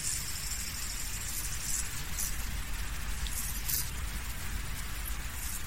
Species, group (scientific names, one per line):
Chorthippus brunneus
Orthoptera